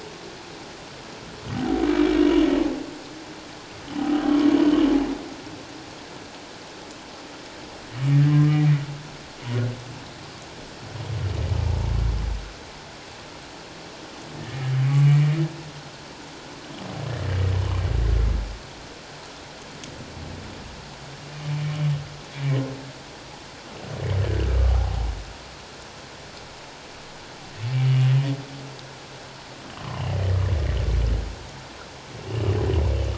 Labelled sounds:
2.2	2.5	humpback whale, 2.8 to 3.1 kHz
14.4	15.3	humpback whale, 1.7 to 2.4 kHz
24.5	25.1	humpback whale, 0.78 to 1.4 kHz
27.8	28.1	humpback whale, 2.8 to 2.9 kHz

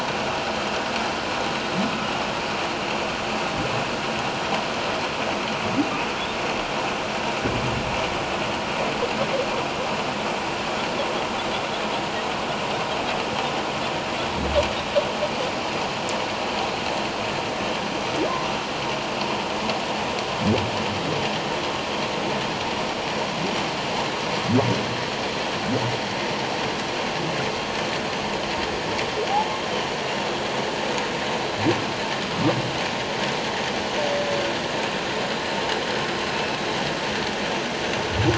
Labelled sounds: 29.3	29.6	humpback whale, 0.78 to 1.0 kHz

